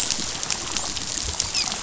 {"label": "biophony, dolphin", "recorder": "SoundTrap 500"}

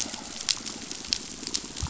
{"label": "biophony", "recorder": "SoundTrap 500"}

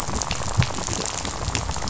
{"label": "biophony, rattle", "recorder": "SoundTrap 500"}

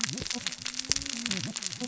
{"label": "biophony, cascading saw", "recorder": "SoundTrap 600 or HydroMoth"}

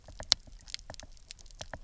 {"label": "biophony, knock", "recorder": "SoundTrap 300"}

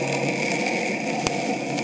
{"label": "anthrophony, boat engine", "recorder": "HydroMoth"}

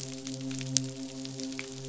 {"label": "biophony, midshipman", "recorder": "SoundTrap 500"}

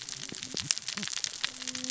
{"label": "biophony, cascading saw", "recorder": "SoundTrap 600 or HydroMoth"}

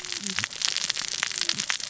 {"label": "biophony, cascading saw", "recorder": "SoundTrap 600 or HydroMoth"}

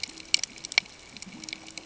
{"label": "ambient", "recorder": "HydroMoth"}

